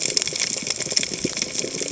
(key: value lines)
label: biophony, cascading saw
recorder: HydroMoth